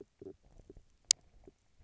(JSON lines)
{"label": "biophony, stridulation", "recorder": "SoundTrap 300"}